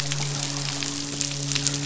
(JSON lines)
{"label": "biophony, midshipman", "recorder": "SoundTrap 500"}